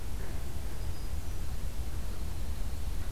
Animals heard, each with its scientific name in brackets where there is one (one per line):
Hermit Thrush (Catharus guttatus)